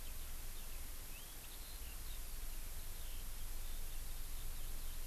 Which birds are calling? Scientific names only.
Alauda arvensis